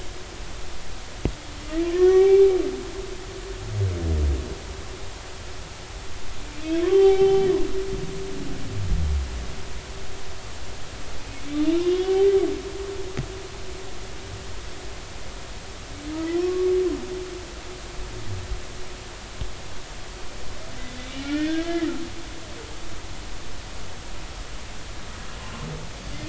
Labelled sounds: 1.9	2.6	humpback whale, 0.80 to 2.4 kHz
6.8	7.5	humpback whale, 0.80 to 5.5 kHz
11.9	12.1	humpback whale, 3.2 to 3.5 kHz
16.4	16.7	humpback whale, 1.0 to 1.2 kHz
21.2	21.9	humpback whale, 1.2 to 2.1 kHz

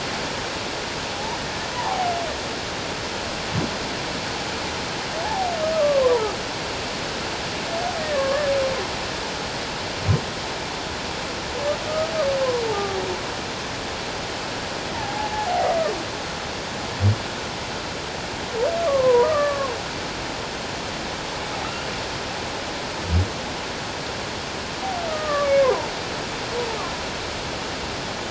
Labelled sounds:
1.1	1.4	humpback whale, 0.78 to 1.0 kHz
1.7	2.1	humpback whale, 0.78 to 1.2 kHz
5.2	6.2	humpback whale, 0.78 to 1.3 kHz
8.1	8.5	humpback whale, 1.0 to 1.3 kHz
11.9	13.0	humpback whale, 0.78 to 1.3 kHz
14.9	15.7	humpback whale, 0.78 to 0.97 kHz
18.9	19.7	humpback whale, 0.91 to 1.9 kHz
25.1	25.9	humpback whale, 0.88 to 2.3 kHz

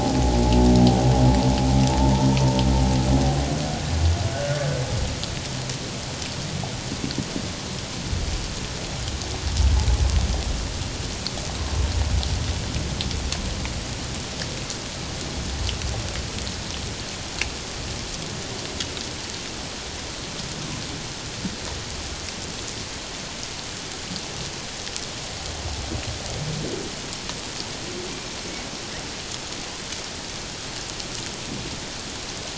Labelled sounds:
2.3	2.6	humpback whale, 0.88 to 1.0 kHz
4.3	4.6	humpback whale, 1.4 to 1.7 kHz

